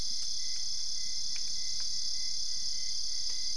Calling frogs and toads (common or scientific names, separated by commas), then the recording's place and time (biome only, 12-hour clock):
none
Cerrado, 3:30am